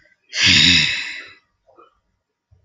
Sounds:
Sigh